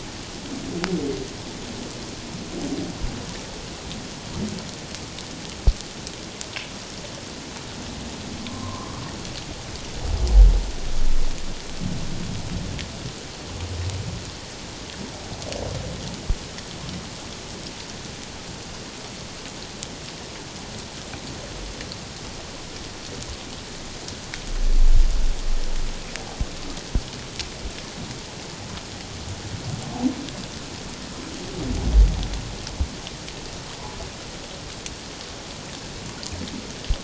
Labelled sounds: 8.5	9.0	humpback whale, 0.94 to 1.2 kHz

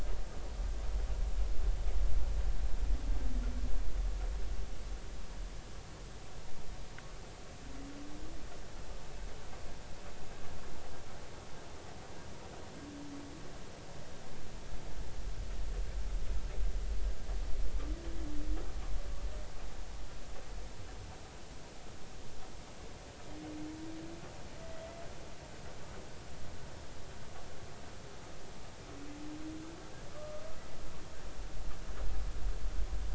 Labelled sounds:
30.1	30.4	humpback whale, 1.1 to 1.3 kHz

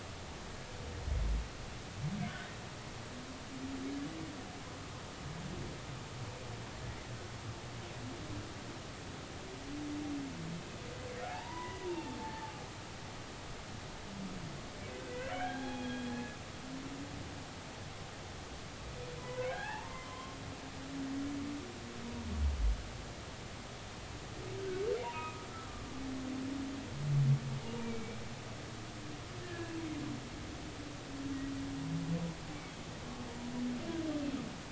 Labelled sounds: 2.2	2.5	humpback whale, 1.4 to 1.6 kHz
11.2	12.5	humpback whale, 0.80 to 2.1 kHz
15.4	16.4	humpback whale, 0.80 to 3.4 kHz
19.2	20.4	humpback whale, 0.80 to 3.2 kHz
25.0	25.5	humpback whale, 0.90 to 2.6 kHz
27.8	28.2	humpback whale, 2.2 to 2.4 kHz
29.4	29.7	humpback whale, 1.6 to 1.9 kHz

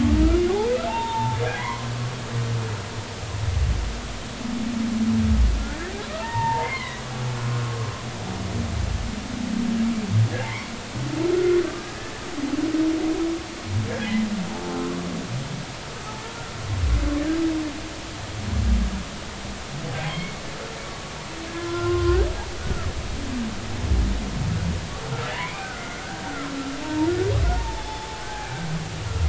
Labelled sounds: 0.9	1.9	humpback whale, 0.80 to 3.7 kHz
6.2	7.0	humpback whale, 0.83 to 4.3 kHz
10.4	10.7	humpback whale, 0.80 to 2.4 kHz
11.4	11.9	humpback whale, 1.1 to 1.5 kHz
20.0	20.4	humpback whale, 2.0 to 3.3 kHz
21.5	22.9	humpback whale, 0.96 to 1.7 kHz
25.4	26.3	humpback whale, 1.4 to 2.5 kHz
26.8	28.5	humpback whale, 0.80 to 5.3 kHz

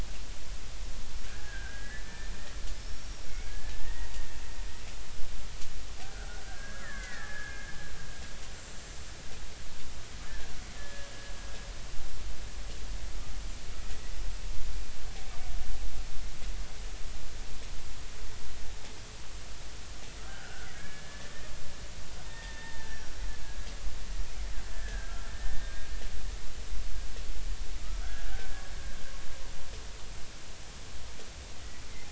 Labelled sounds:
1.2	2.3	killer whale, Bigg's (transient), 1.4 to 2.0 kHz
2.7	4.2	killer whale, Bigg's (transient), 0.86 to 5.7 kHz
6.0	7.7	killer whale, Bigg's (transient), 1.2 to 2.2 kHz
10.7	11.1	killer whale, Bigg's (transient), 1.6 to 1.8 kHz
20.3	21.3	killer whale, Bigg's (transient), 1.3 to 2.4 kHz
22.3	23.1	killer whale, Bigg's (transient), 0.86 to 3.7 kHz
23.9	25.7	killer whale, Bigg's (transient), 1.5 to 5.8 kHz
27.8	28.5	killer whale, Bigg's (transient), 1.2 to 1.8 kHz

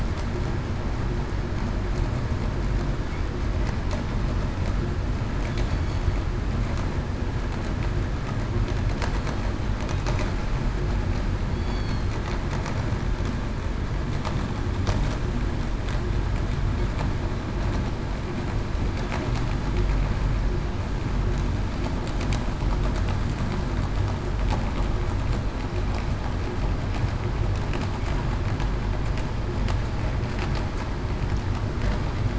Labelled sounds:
11.5	12.1	killer whale, southern resident, 3.2 to 4.6 kHz

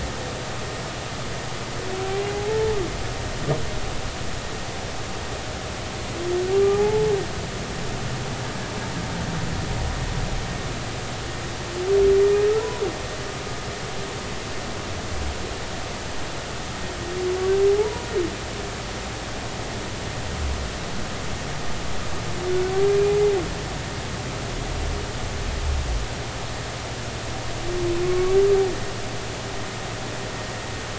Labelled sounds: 2.3	2.8	humpback whale, 0.80 to 0.93 kHz
6.5	7.1	humpback whale, 0.80 to 1.2 kHz
17.7	18.1	humpback whale, 0.80 to 1.0 kHz
22.9	23.2	humpback whale, 2.4 to 2.5 kHz
28.0	28.4	humpback whale, 1.1 to 1.2 kHz

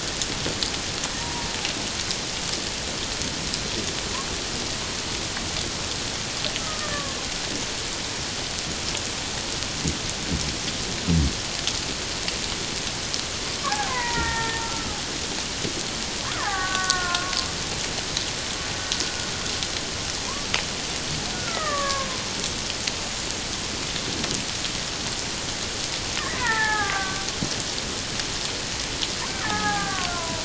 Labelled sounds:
1.2	1.5	killer whale, Bigg's (transient), 0.88 to 1.0 kHz
6.6	7.2	killer whale, Bigg's (transient), 1.0 to 1.3 kHz
13.6	14.9	killer whale, Bigg's (transient), 0.84 to 2.2 kHz
16.4	17.3	killer whale, Bigg's (transient), 1.0 to 1.9 kHz
21.3	22.1	killer whale, Bigg's (transient), 1.0 to 2.0 kHz
26.3	27.2	killer whale, Bigg's (transient), 0.78 to 2.1 kHz
29.4	30.4	killer whale, Bigg's (transient), 0.78 to 1.8 kHz

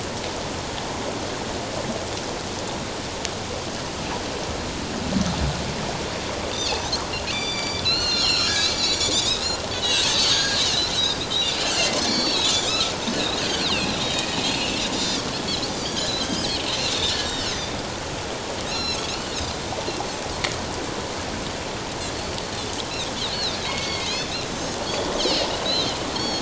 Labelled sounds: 6.5	7.0	Pacific white-sided dolphin, 4.0 to 6.7 kHz
7.3	14.2	Pacific white-sided dolphin, 1.2 to 7.1 kHz
14.5	14.8	Pacific white-sided dolphin, 2.6 to 2.9 kHz
15.7	17.5	Pacific white-sided dolphin, 1.5 to 8.0 kHz
18.7	19.6	Pacific white-sided dolphin, 2.5 to 6.9 kHz
22.4	22.7	Pacific white-sided dolphin, 4.0 to 4.5 kHz
23.2	26.4	Pacific white-sided dolphin, 2.0 to 6.6 kHz

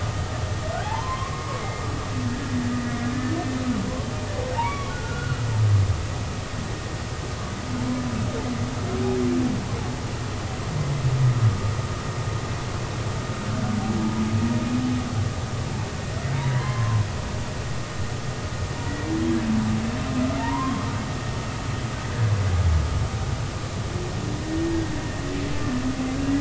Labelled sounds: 0.8	1.5	humpback whale, 0.80 to 1.2 kHz
3.1	3.6	humpback whale, 1.7 to 1.8 kHz
4.5	5.5	humpback whale, 0.80 to 3.5 kHz
16.5	17.1	humpback whale, 0.93 to 3.2 kHz
20.4	20.9	humpback whale, 0.86 to 1.2 kHz
22.1	22.3	humpback whale, 1.5 to 1.8 kHz

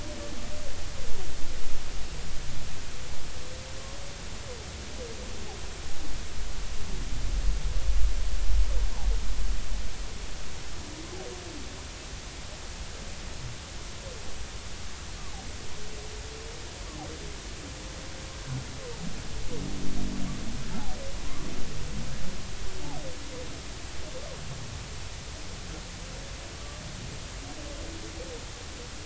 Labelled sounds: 26.5	26.8	humpback whale, 1.1 to 1.2 kHz

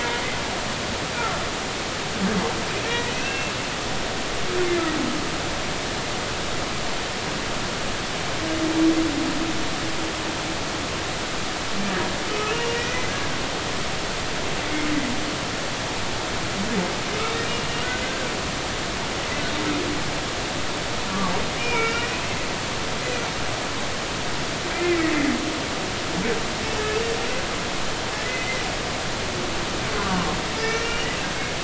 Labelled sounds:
0.0	0.2	humpback whale, 2.1 to 2.2 kHz
2.8	3.5	humpback whale, 1.8 to 2.8 kHz
12.3	13.1	humpback whale, 1.2 to 6.1 kHz
18.0	18.3	humpback whale, 1.4 to 1.6 kHz
21.6	22.4	humpback whale, 1.3 to 2.9 kHz
24.7	25.0	humpback whale, 2.0 to 2.5 kHz
30.6	31.1	humpback whale, 1.7 to 5.6 kHz

